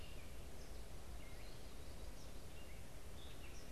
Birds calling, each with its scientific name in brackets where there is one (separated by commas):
Eastern Kingbird (Tyrannus tyrannus), Gray Catbird (Dumetella carolinensis)